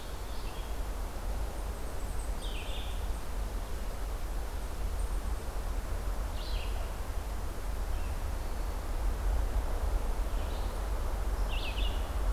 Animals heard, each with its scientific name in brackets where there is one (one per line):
Red-eyed Vireo (Vireo olivaceus)